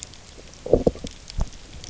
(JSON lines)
{"label": "biophony, low growl", "recorder": "SoundTrap 300"}